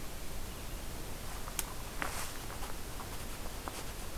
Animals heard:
forest ambience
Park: Katahdin Woods and Waters National Monument